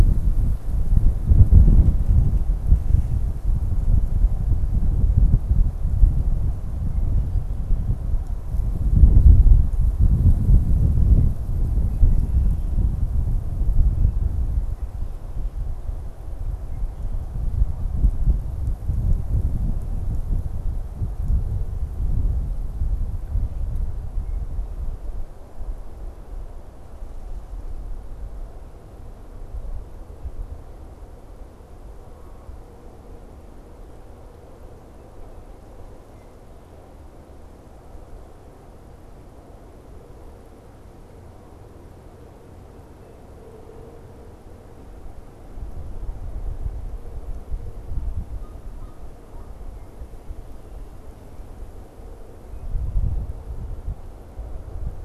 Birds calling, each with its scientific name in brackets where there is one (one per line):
Canada Goose (Branta canadensis)